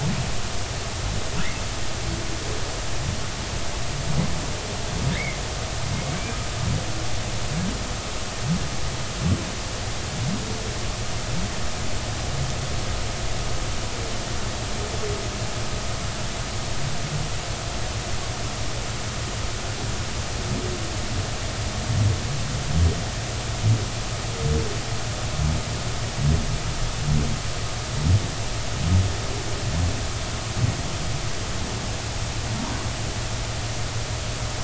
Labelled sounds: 5.2	5.4	humpback whale, 1.9 to 2.3 kHz

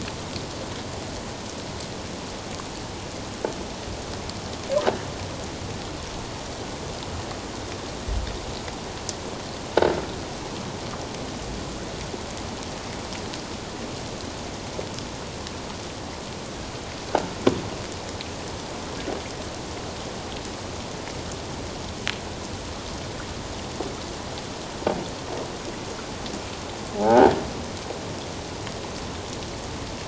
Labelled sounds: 27.0	27.3	croaking sound likely from a nearby submerged object, 0.78 to 1.6 kHz

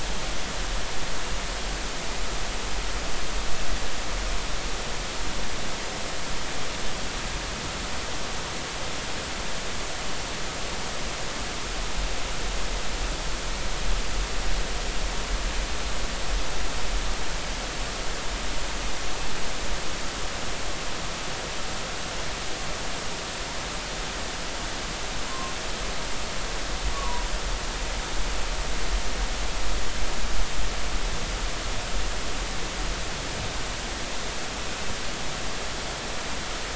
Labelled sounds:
25.3	25.5	humpback whale, 0.96 to 1.1 kHz
26.9	27.3	humpback whale, 0.90 to 1.2 kHz

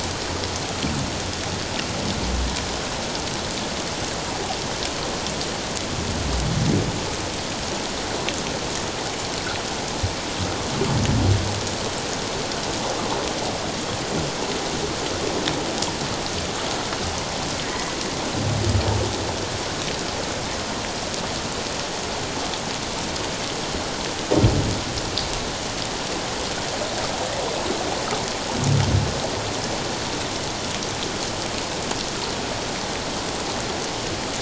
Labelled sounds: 17.7	17.9	humpback whale, 1.9 to 2.0 kHz

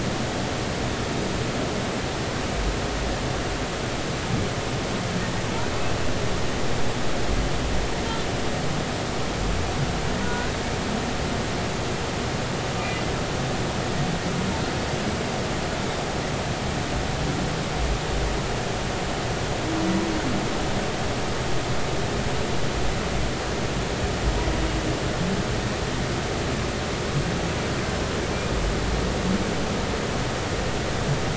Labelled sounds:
10.2	10.5	humpback whale, 1.4 to 1.5 kHz

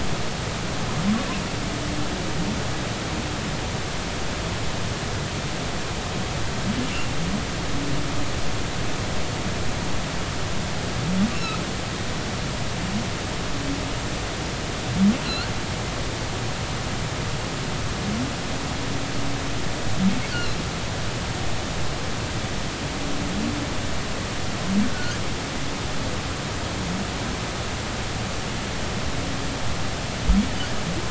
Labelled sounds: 11.3	11.6	humpback whale, 2.5 to 2.8 kHz
15.2	15.5	humpback whale, 3.9 to 4.6 kHz
20.3	20.6	humpback whale, 3.9 to 4.6 kHz

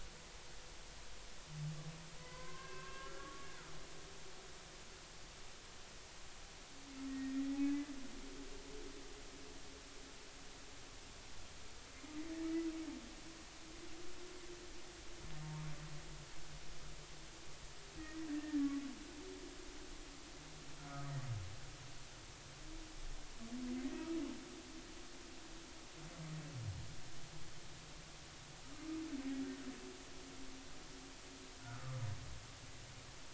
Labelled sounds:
2.2	3.5	humpback whale, 0.96 to 2.7 kHz
7.1	7.5	humpback whale, 1.8 to 2.0 kHz
18.0	18.7	humpback whale, 1.6 to 2.0 kHz
20.8	21.1	humpback whale, 1.2 to 1.5 kHz
31.6	32.0	humpback whale, 1.0 to 1.5 kHz

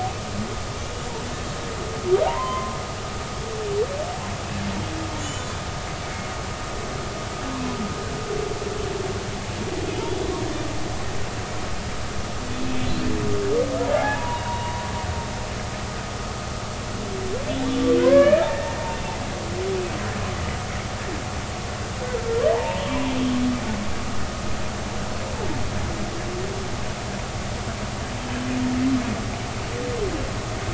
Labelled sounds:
2.3	2.8	humpback whale, 0.80 to 1.1 kHz
5.2	5.6	humpback whale, 6.4 to 7.2 kHz
13.9	14.8	humpback whale, 0.80 to 1.1 kHz
18.0	18.8	humpback whale, 0.96 to 2.5 kHz
22.5	22.8	humpback whale, 0.80 to 1.1 kHz
28.2	28.5	humpback whale, 3.0 to 3.3 kHz

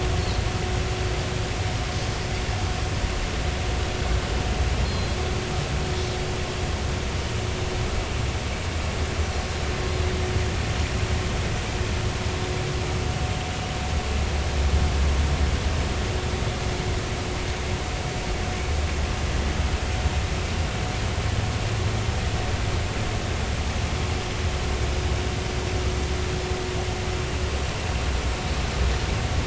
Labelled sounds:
4.8	5.2	Pacific white-sided dolphin, 4.0 to 4.3 kHz

